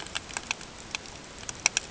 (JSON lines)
{"label": "ambient", "recorder": "HydroMoth"}